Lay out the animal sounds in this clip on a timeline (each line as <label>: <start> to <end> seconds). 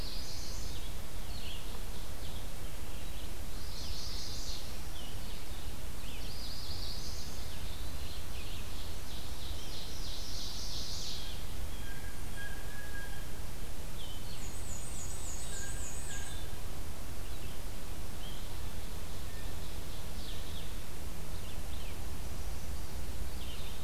Chestnut-sided Warbler (Setophaga pensylvanica): 0.0 to 0.9 seconds
Red-eyed Vireo (Vireo olivaceus): 0.0 to 23.8 seconds
Ovenbird (Seiurus aurocapilla): 1.1 to 2.5 seconds
Chestnut-sided Warbler (Setophaga pensylvanica): 3.5 to 4.6 seconds
Chestnut-sided Warbler (Setophaga pensylvanica): 6.2 to 7.4 seconds
Eastern Wood-Pewee (Contopus virens): 7.2 to 8.4 seconds
Ovenbird (Seiurus aurocapilla): 8.3 to 11.0 seconds
Chestnut-sided Warbler (Setophaga pensylvanica): 10.2 to 11.2 seconds
Blue Jay (Cyanocitta cristata): 11.7 to 13.3 seconds
Black-and-white Warbler (Mniotilta varia): 14.2 to 16.4 seconds
Blue Jay (Cyanocitta cristata): 15.4 to 16.5 seconds
Ovenbird (Seiurus aurocapilla): 18.3 to 20.6 seconds